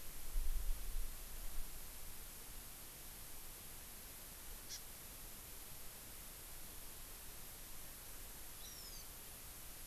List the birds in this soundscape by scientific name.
Chlorodrepanis virens